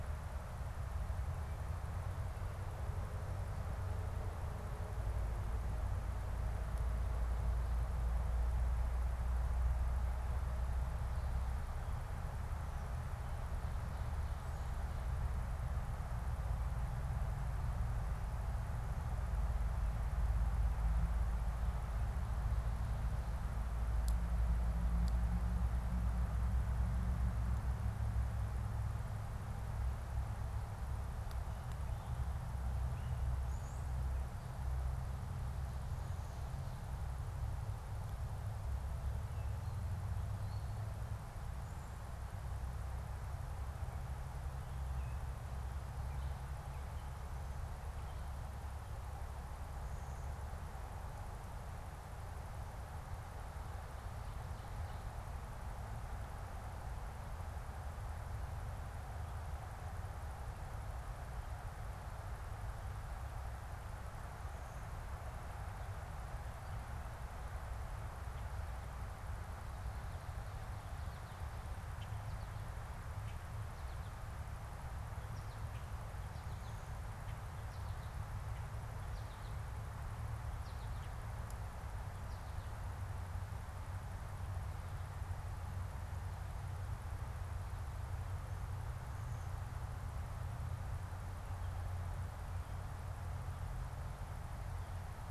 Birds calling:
Red-winged Blackbird (Agelaius phoeniceus)
American Goldfinch (Spinus tristis)
unidentified bird
Gray Catbird (Dumetella carolinensis)

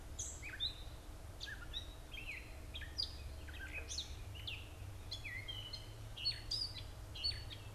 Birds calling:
Gray Catbird (Dumetella carolinensis)

